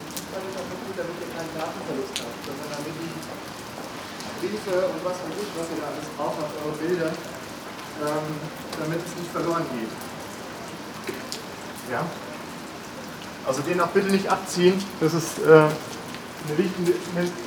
Are dogs barking?
no